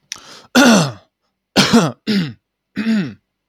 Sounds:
Throat clearing